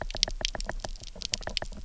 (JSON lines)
{"label": "biophony, knock", "recorder": "SoundTrap 300"}